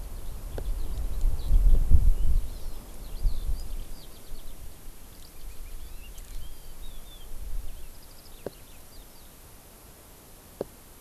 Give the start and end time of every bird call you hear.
0.0s-9.3s: Eurasian Skylark (Alauda arvensis)
2.5s-2.9s: Hawaii Amakihi (Chlorodrepanis virens)

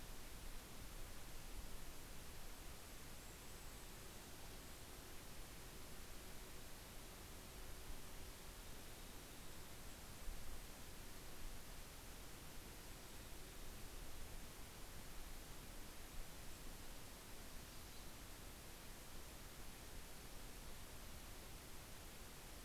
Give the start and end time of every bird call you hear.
2.4s-5.3s: Golden-crowned Kinglet (Regulus satrapa)
7.9s-10.2s: Mountain Chickadee (Poecile gambeli)
9.3s-11.5s: Golden-crowned Kinglet (Regulus satrapa)
17.4s-18.6s: Yellow-rumped Warbler (Setophaga coronata)

